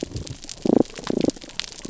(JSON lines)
{"label": "biophony, damselfish", "recorder": "SoundTrap 300"}